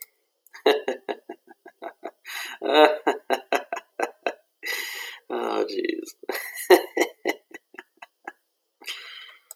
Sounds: Laughter